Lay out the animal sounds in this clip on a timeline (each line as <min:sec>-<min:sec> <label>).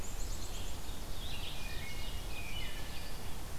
0:00.0-0:00.8 Black-capped Chickadee (Poecile atricapillus)
0:00.0-0:01.7 Rose-breasted Grosbeak (Pheucticus ludovicianus)
0:01.5-0:03.4 Ovenbird (Seiurus aurocapilla)
0:01.6-0:03.0 Wood Thrush (Hylocichla mustelina)